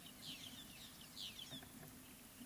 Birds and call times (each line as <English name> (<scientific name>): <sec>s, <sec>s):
White-headed Buffalo-Weaver (Dinemellia dinemelli): 1.2s